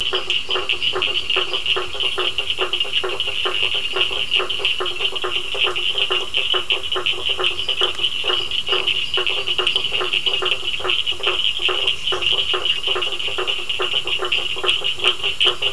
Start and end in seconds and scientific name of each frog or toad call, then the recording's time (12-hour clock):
0.0	1.7	Dendropsophus minutus
0.0	5.4	Elachistocleis bicolor
0.0	15.7	Boana faber
0.0	15.7	Sphaenorhynchus surdus
7.5	10.2	Dendropsophus minutus
8.2	15.7	Elachistocleis bicolor
8:15pm